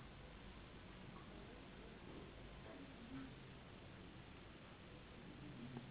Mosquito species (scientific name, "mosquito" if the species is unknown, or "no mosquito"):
Anopheles gambiae s.s.